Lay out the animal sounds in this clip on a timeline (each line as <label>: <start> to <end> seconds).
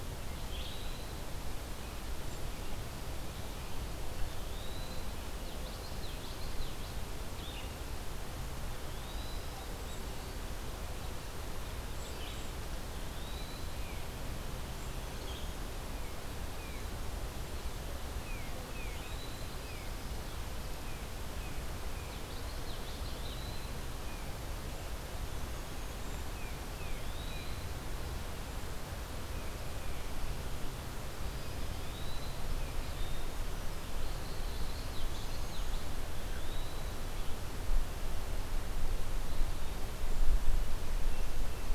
Eastern Wood-Pewee (Contopus virens): 0.3 to 1.3 seconds
Eastern Wood-Pewee (Contopus virens): 4.2 to 5.2 seconds
Common Yellowthroat (Geothlypis trichas): 5.4 to 6.9 seconds
Red-eyed Vireo (Vireo olivaceus): 7.2 to 7.7 seconds
Eastern Wood-Pewee (Contopus virens): 8.5 to 9.5 seconds
Red-eyed Vireo (Vireo olivaceus): 12.0 to 15.6 seconds
Eastern Wood-Pewee (Contopus virens): 12.9 to 13.8 seconds
Tufted Titmouse (Baeolophus bicolor): 18.0 to 20.2 seconds
Eastern Wood-Pewee (Contopus virens): 18.8 to 19.6 seconds
Common Yellowthroat (Geothlypis trichas): 22.0 to 23.2 seconds
Eastern Wood-Pewee (Contopus virens): 22.9 to 23.8 seconds
Tufted Titmouse (Baeolophus bicolor): 26.3 to 27.6 seconds
Eastern Wood-Pewee (Contopus virens): 26.8 to 27.8 seconds
Tufted Titmouse (Baeolophus bicolor): 29.2 to 30.2 seconds
Eastern Wood-Pewee (Contopus virens): 31.6 to 32.5 seconds
Common Yellowthroat (Geothlypis trichas): 34.4 to 36.0 seconds
Eastern Wood-Pewee (Contopus virens): 36.1 to 37.0 seconds
Tufted Titmouse (Baeolophus bicolor): 40.9 to 41.7 seconds